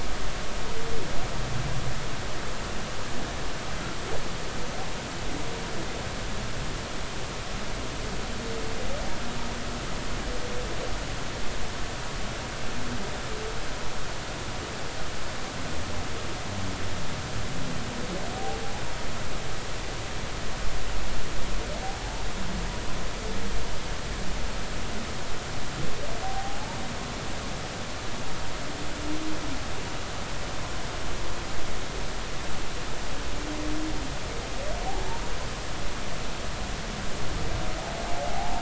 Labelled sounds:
22.0	22.2	humpback whale, 0.80 to 0.99 kHz
26.2	26.8	humpback whale, 0.80 to 0.99 kHz
38.1	38.5	humpback whale, 0.80 to 0.96 kHz

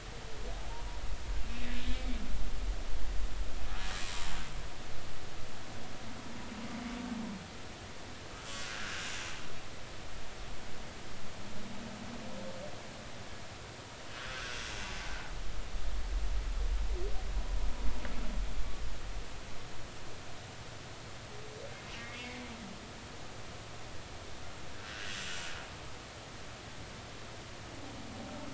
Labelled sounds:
1.9	2.2	humpback whale, 2.2 to 2.4 kHz
4.0	4.3	humpback whale, 0.86 to 1.1 kHz
8.6	9.1	humpback whale, 1.3 to 1.7 kHz
14.3	14.6	humpback whale, 1.2 to 1.7 kHz
24.7	25.1	humpback whale, 1.3 to 1.8 kHz

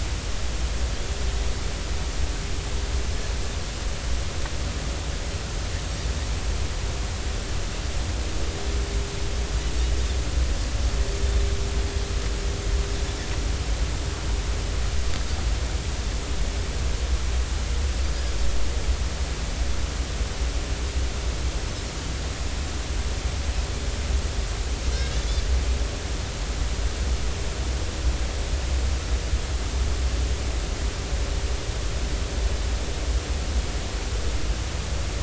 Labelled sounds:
24.9	25.2	Pacific white-sided dolphin, 1.5 to 3.9 kHz

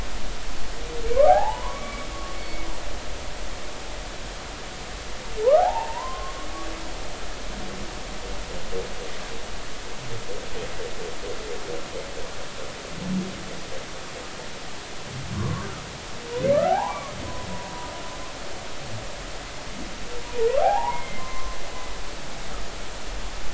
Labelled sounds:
1.3	2.1	humpback whale, 0.80 to 2.3 kHz
2.4	2.7	humpback whale, 2.1 to 2.3 kHz
5.4	6.4	humpback whale, 0.80 to 1.5 kHz
15.4	15.7	humpback whale, 0.99 to 1.2 kHz
16.5	17.1	humpback whale, 0.80 to 1.7 kHz
20.2	21.6	humpback whale, 0.80 to 1.3 kHz
21.9	22.3	humpback whale, 2.0 to 2.2 kHz

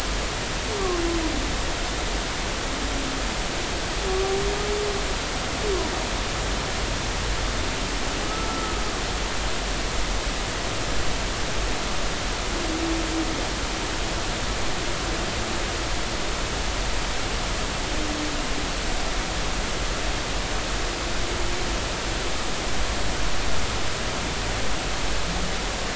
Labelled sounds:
8.5	8.8	humpback whale, 1.2 to 1.4 kHz

